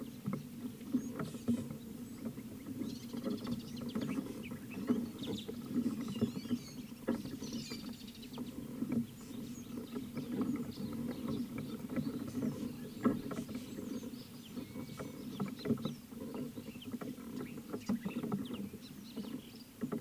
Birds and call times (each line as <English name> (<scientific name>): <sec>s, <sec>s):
Mariqua Sunbird (Cinnyris mariquensis): 3.5s
Scarlet-chested Sunbird (Chalcomitra senegalensis): 18.5s